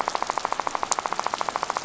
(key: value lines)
label: biophony, rattle
recorder: SoundTrap 500